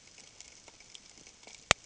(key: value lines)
label: ambient
recorder: HydroMoth